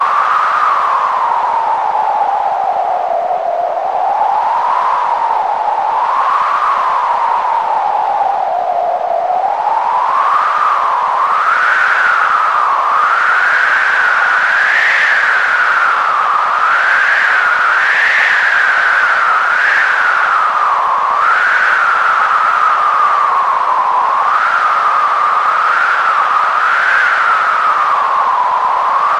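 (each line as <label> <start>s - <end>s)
Wind blows strongly through a narrow gap. 0.0s - 29.1s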